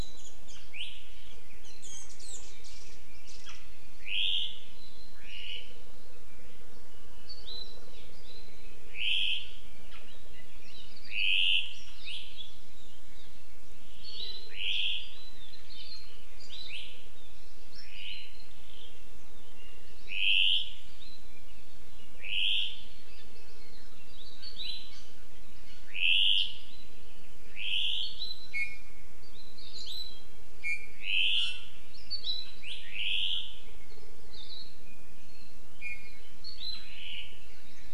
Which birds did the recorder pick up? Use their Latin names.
Himatione sanguinea, Loxops coccineus